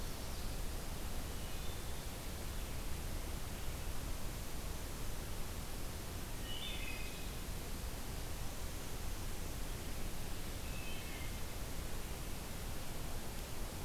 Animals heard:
Wood Thrush (Hylocichla mustelina)

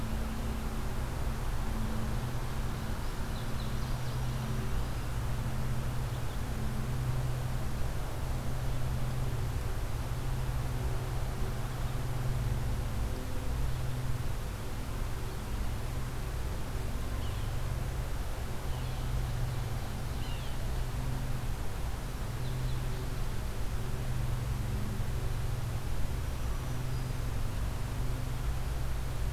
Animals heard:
Yellow-bellied Sapsucker (Sphyrapicus varius), Black-throated Green Warbler (Setophaga virens), Indigo Bunting (Passerina cyanea)

